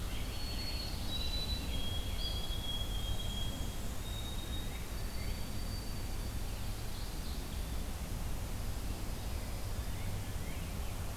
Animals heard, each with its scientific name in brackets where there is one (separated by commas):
Black-and-white Warbler (Mniotilta varia), White-throated Sparrow (Zonotrichia albicollis)